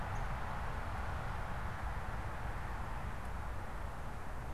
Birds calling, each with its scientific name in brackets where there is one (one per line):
unidentified bird